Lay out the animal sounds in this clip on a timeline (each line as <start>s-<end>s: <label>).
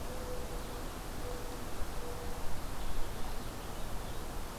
0.0s-2.3s: Mourning Dove (Zenaida macroura)
2.4s-4.3s: Purple Finch (Haemorhous purpureus)